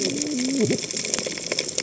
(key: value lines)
label: biophony, cascading saw
recorder: HydroMoth